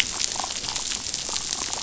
{"label": "biophony, damselfish", "recorder": "SoundTrap 500"}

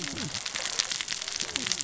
{"label": "biophony, cascading saw", "recorder": "SoundTrap 600 or HydroMoth"}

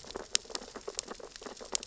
{"label": "biophony, sea urchins (Echinidae)", "recorder": "SoundTrap 600 or HydroMoth"}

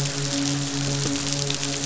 {"label": "biophony, midshipman", "recorder": "SoundTrap 500"}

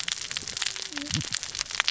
{"label": "biophony, cascading saw", "recorder": "SoundTrap 600 or HydroMoth"}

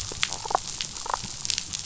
{"label": "biophony, damselfish", "recorder": "SoundTrap 500"}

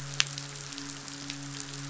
{"label": "biophony, midshipman", "recorder": "SoundTrap 500"}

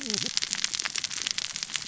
{"label": "biophony, cascading saw", "recorder": "SoundTrap 600 or HydroMoth"}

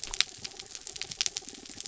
{"label": "anthrophony, mechanical", "recorder": "SoundTrap 300"}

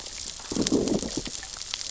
{"label": "biophony, growl", "recorder": "SoundTrap 600 or HydroMoth"}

